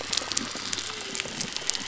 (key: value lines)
label: biophony
recorder: SoundTrap 300